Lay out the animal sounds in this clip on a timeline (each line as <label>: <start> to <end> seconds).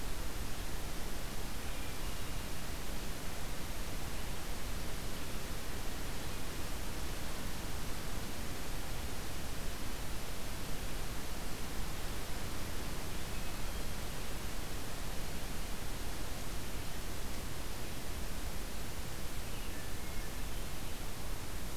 Hermit Thrush (Catharus guttatus): 1.2 to 3.0 seconds
Hermit Thrush (Catharus guttatus): 19.2 to 20.7 seconds